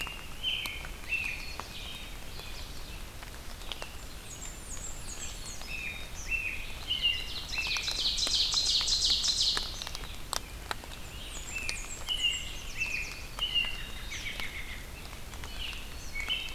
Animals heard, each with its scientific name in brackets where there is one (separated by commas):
Eastern Kingbird (Tyrannus tyrannus), Yellow Warbler (Setophaga petechia), Red-eyed Vireo (Vireo olivaceus), Black-capped Chickadee (Poecile atricapillus), Blackburnian Warbler (Setophaga fusca), American Robin (Turdus migratorius), Ovenbird (Seiurus aurocapilla)